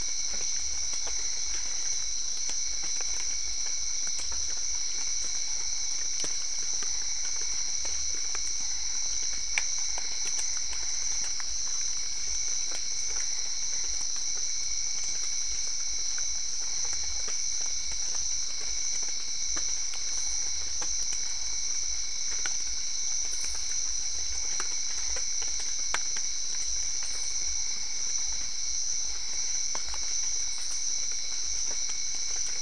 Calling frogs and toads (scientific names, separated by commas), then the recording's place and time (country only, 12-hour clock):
Physalaemus cuvieri, Boana albopunctata
Brazil, 7:30pm